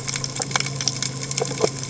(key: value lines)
label: biophony
recorder: HydroMoth